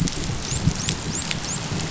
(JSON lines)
{"label": "biophony, dolphin", "recorder": "SoundTrap 500"}